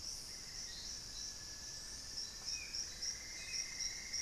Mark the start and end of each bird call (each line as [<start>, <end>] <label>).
[0.17, 1.17] Amazonian Barred-Woodcreeper (Dendrocolaptes certhia)
[0.67, 3.17] Grayish Mourner (Rhytipterna simplex)
[2.27, 4.22] Hauxwell's Thrush (Turdus hauxwelli)
[2.67, 4.22] Cinnamon-throated Woodcreeper (Dendrexetastes rufigula)